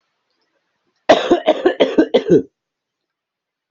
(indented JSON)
{
  "expert_labels": [
    {
      "quality": "ok",
      "cough_type": "dry",
      "dyspnea": false,
      "wheezing": false,
      "stridor": false,
      "choking": false,
      "congestion": false,
      "nothing": true,
      "diagnosis": "healthy cough",
      "severity": "pseudocough/healthy cough"
    }
  ],
  "age": 45,
  "gender": "female",
  "respiratory_condition": false,
  "fever_muscle_pain": false,
  "status": "healthy"
}